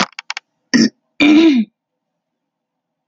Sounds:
Throat clearing